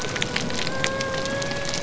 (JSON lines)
{"label": "biophony", "recorder": "SoundTrap 300"}